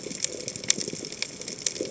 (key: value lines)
label: biophony
recorder: HydroMoth